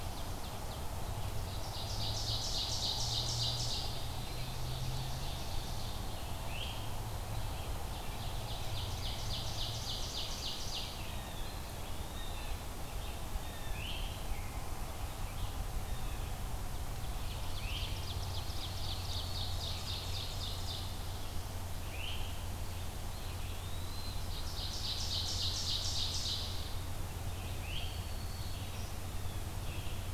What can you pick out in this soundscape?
Ovenbird, Red-eyed Vireo, Eastern Wood-Pewee, Great Crested Flycatcher, Blue Jay, Black-throated Green Warbler